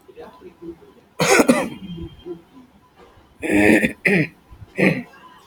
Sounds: Throat clearing